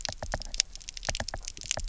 {"label": "biophony, knock", "recorder": "SoundTrap 300"}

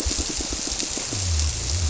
{"label": "biophony, squirrelfish (Holocentrus)", "recorder": "SoundTrap 300"}
{"label": "biophony", "recorder": "SoundTrap 300"}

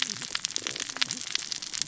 {"label": "biophony, cascading saw", "recorder": "SoundTrap 600 or HydroMoth"}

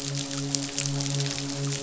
{"label": "biophony, midshipman", "recorder": "SoundTrap 500"}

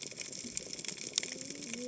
{"label": "biophony, cascading saw", "recorder": "HydroMoth"}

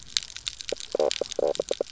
{"label": "biophony, knock croak", "recorder": "SoundTrap 300"}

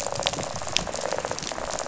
{"label": "biophony, rattle", "recorder": "SoundTrap 500"}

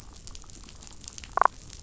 {"label": "biophony, damselfish", "recorder": "SoundTrap 500"}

